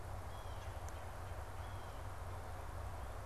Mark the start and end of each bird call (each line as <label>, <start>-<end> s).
Blue Jay (Cyanocitta cristata), 0.0-3.3 s
Red-bellied Woodpecker (Melanerpes carolinus), 0.5-2.5 s